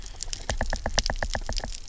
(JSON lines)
{"label": "biophony, knock", "recorder": "SoundTrap 300"}